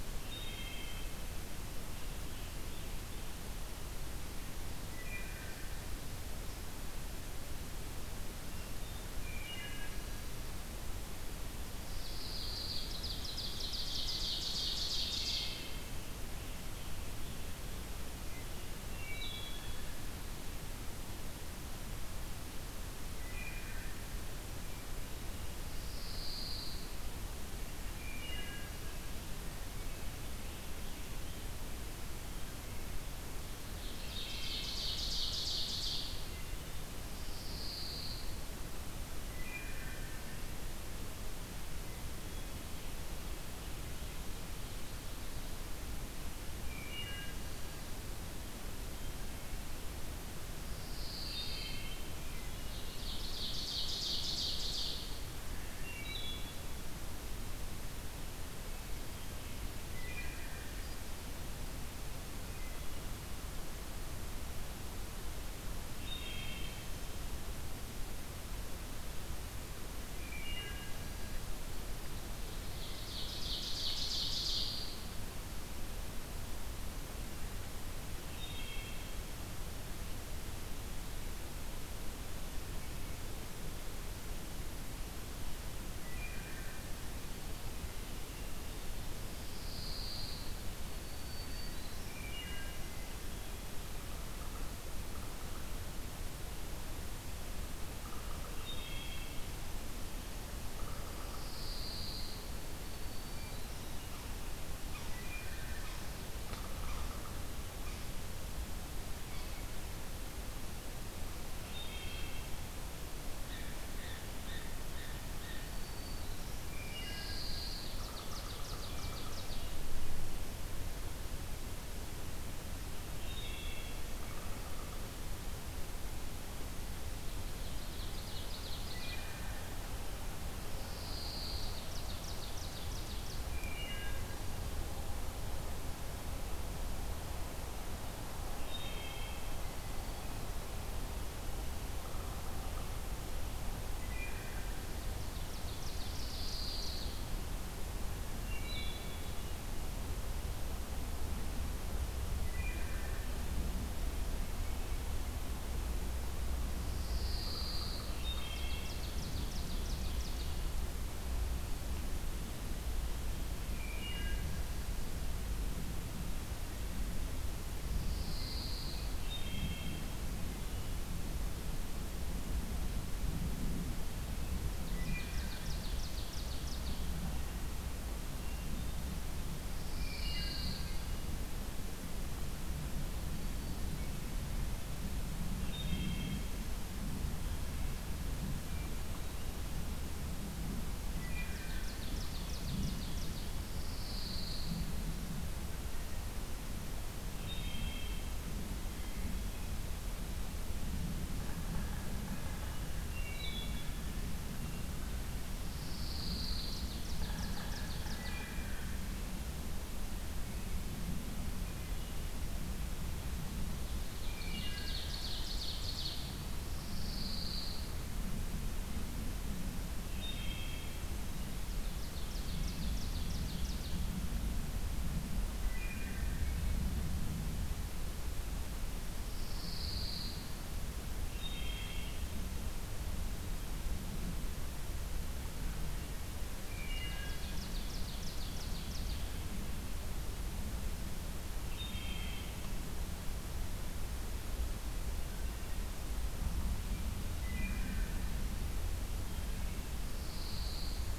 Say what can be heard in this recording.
Wood Thrush, Pine Warbler, Ovenbird, Black-throated Green Warbler, Yellow-bellied Sapsucker, Blue Jay